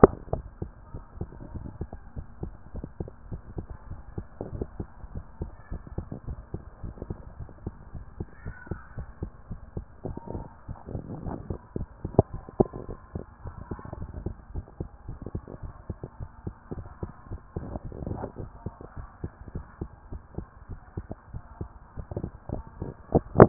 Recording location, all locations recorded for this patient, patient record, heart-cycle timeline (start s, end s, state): tricuspid valve (TV)
pulmonary valve (PV)+tricuspid valve (TV)
#Age: Child
#Sex: Male
#Height: 126.0 cm
#Weight: 33.6 kg
#Pregnancy status: False
#Murmur: Absent
#Murmur locations: nan
#Most audible location: nan
#Systolic murmur timing: nan
#Systolic murmur shape: nan
#Systolic murmur grading: nan
#Systolic murmur pitch: nan
#Systolic murmur quality: nan
#Diastolic murmur timing: nan
#Diastolic murmur shape: nan
#Diastolic murmur grading: nan
#Diastolic murmur pitch: nan
#Diastolic murmur quality: nan
#Outcome: Normal
#Campaign: 2014 screening campaign
0.00	3.30	unannotated
3.30	3.42	S1
3.42	3.56	systole
3.56	3.66	S2
3.66	3.88	diastole
3.88	4.00	S1
4.00	4.16	systole
4.16	4.26	S2
4.26	4.52	diastole
4.52	4.63	S1
4.63	4.78	systole
4.78	4.88	S2
4.88	5.14	diastole
5.14	5.24	S1
5.24	5.40	systole
5.40	5.50	S2
5.50	5.72	diastole
5.72	5.82	S1
5.82	5.96	systole
5.96	6.06	S2
6.06	6.28	diastole
6.28	6.38	S1
6.38	6.52	systole
6.52	6.62	S2
6.62	6.84	diastole
6.84	6.94	S1
6.94	7.08	systole
7.08	7.18	S2
7.18	7.38	diastole
7.38	7.48	S1
7.48	7.64	systole
7.64	7.74	S2
7.74	7.95	diastole
7.95	23.49	unannotated